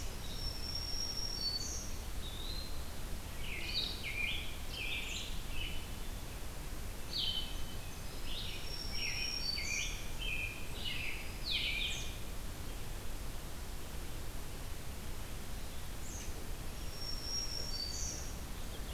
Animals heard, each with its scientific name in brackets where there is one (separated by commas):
Black-throated Green Warbler (Setophaga virens), American Robin (Turdus migratorius), Eastern Wood-Pewee (Contopus virens), Blue-headed Vireo (Vireo solitarius)